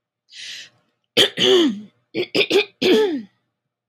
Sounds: Throat clearing